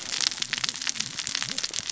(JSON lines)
{"label": "biophony, cascading saw", "recorder": "SoundTrap 600 or HydroMoth"}